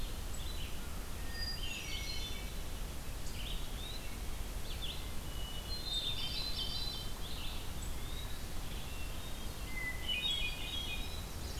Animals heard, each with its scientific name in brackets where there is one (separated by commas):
Hermit Thrush (Catharus guttatus), Eastern Wood-Pewee (Contopus virens), Red-eyed Vireo (Vireo olivaceus)